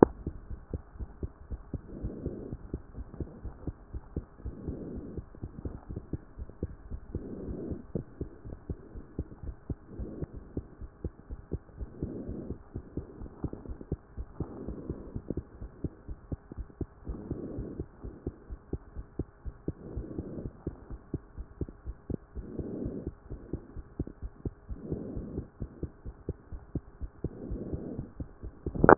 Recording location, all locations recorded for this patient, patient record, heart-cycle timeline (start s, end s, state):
aortic valve (AV)
aortic valve (AV)+pulmonary valve (PV)+tricuspid valve (TV)+mitral valve (MV)
#Age: Child
#Sex: Female
#Height: 114.0 cm
#Weight: 25.8 kg
#Pregnancy status: False
#Murmur: Absent
#Murmur locations: nan
#Most audible location: nan
#Systolic murmur timing: nan
#Systolic murmur shape: nan
#Systolic murmur grading: nan
#Systolic murmur pitch: nan
#Systolic murmur quality: nan
#Diastolic murmur timing: nan
#Diastolic murmur shape: nan
#Diastolic murmur grading: nan
#Diastolic murmur pitch: nan
#Diastolic murmur quality: nan
#Outcome: Normal
#Campaign: 2014 screening campaign
0.00	0.41	unannotated
0.41	0.50	diastole
0.50	0.60	S1
0.60	0.70	systole
0.70	0.84	S2
0.84	0.98	diastole
0.98	1.10	S1
1.10	1.20	systole
1.20	1.34	S2
1.34	1.50	diastole
1.50	1.62	S1
1.62	1.70	systole
1.70	1.80	S2
1.80	1.96	diastole
1.96	2.14	S1
2.14	2.22	systole
2.22	2.36	S2
2.36	2.50	diastole
2.50	2.60	S1
2.60	2.70	systole
2.70	2.80	S2
2.80	2.96	diastole
2.96	3.08	S1
3.08	3.18	systole
3.18	3.28	S2
3.28	3.44	diastole
3.44	3.56	S1
3.56	3.66	systole
3.66	3.76	S2
3.76	3.92	diastole
3.92	4.02	S1
4.02	4.12	systole
4.12	4.24	S2
4.24	4.44	diastole
4.44	4.58	S1
4.58	4.66	systole
4.66	4.78	S2
4.78	4.92	diastole
4.92	5.04	S1
5.04	5.10	systole
5.10	5.24	S2
5.24	5.42	diastole
5.42	5.52	S1
5.52	5.62	systole
5.62	5.74	S2
5.74	5.88	diastole
5.88	6.04	S1
6.04	6.10	systole
6.10	6.24	S2
6.24	6.40	diastole
6.40	6.50	S1
6.50	6.60	systole
6.60	6.72	S2
6.72	6.90	diastole
6.90	7.00	S1
7.00	7.10	systole
7.10	7.24	S2
7.24	7.40	diastole
7.40	7.58	S1
7.58	7.66	systole
7.66	7.80	S2
7.80	28.98	unannotated